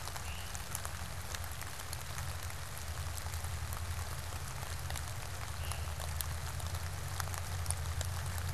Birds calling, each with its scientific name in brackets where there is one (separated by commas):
Veery (Catharus fuscescens)